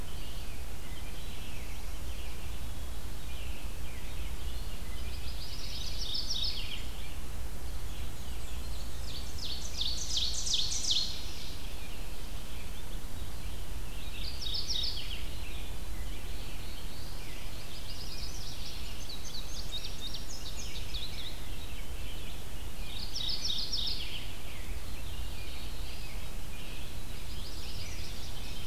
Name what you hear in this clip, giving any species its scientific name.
Vireo olivaceus, Geothlypis philadelphia, Seiurus aurocapilla, Setophaga caerulescens, Setophaga pensylvanica, Passerina cyanea